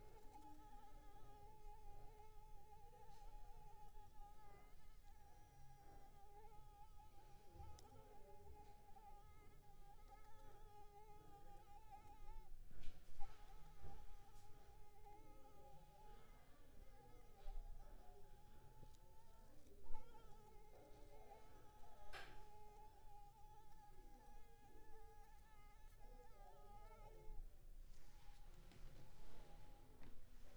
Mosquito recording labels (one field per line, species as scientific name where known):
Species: Anopheles arabiensis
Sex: female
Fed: unfed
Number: one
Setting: cup